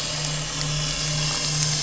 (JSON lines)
{"label": "anthrophony, boat engine", "recorder": "SoundTrap 500"}